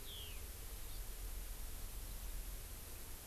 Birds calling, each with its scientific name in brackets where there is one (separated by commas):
Eurasian Skylark (Alauda arvensis)